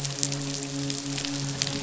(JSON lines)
{"label": "biophony, midshipman", "recorder": "SoundTrap 500"}